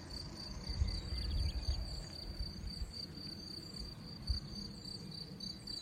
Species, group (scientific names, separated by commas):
Gryllus campestris, Orthoptera